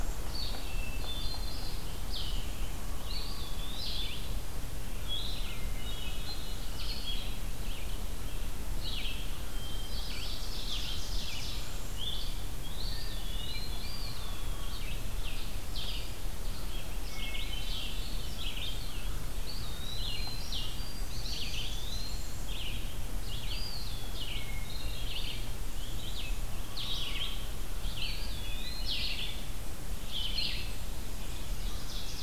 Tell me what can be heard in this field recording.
Red-eyed Vireo, Blue-headed Vireo, Hermit Thrush, Eastern Wood-Pewee, Ovenbird